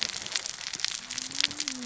{"label": "biophony, cascading saw", "recorder": "SoundTrap 600 or HydroMoth"}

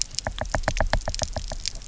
{"label": "biophony, knock", "recorder": "SoundTrap 300"}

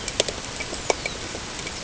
{"label": "ambient", "recorder": "HydroMoth"}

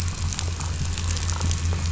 {"label": "anthrophony, boat engine", "recorder": "SoundTrap 500"}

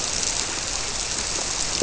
{"label": "biophony", "recorder": "SoundTrap 300"}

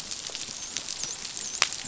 {"label": "biophony, dolphin", "recorder": "SoundTrap 500"}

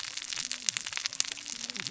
{"label": "biophony, cascading saw", "recorder": "SoundTrap 600 or HydroMoth"}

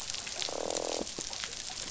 {"label": "biophony, croak", "recorder": "SoundTrap 500"}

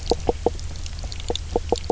{"label": "biophony, knock croak", "recorder": "SoundTrap 300"}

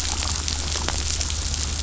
{"label": "anthrophony, boat engine", "recorder": "SoundTrap 500"}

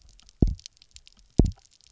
{"label": "biophony, double pulse", "recorder": "SoundTrap 300"}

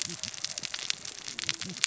{"label": "biophony, cascading saw", "recorder": "SoundTrap 600 or HydroMoth"}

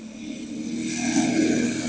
{"label": "anthrophony, boat engine", "recorder": "HydroMoth"}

